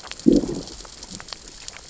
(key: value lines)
label: biophony, growl
recorder: SoundTrap 600 or HydroMoth